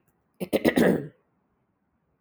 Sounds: Throat clearing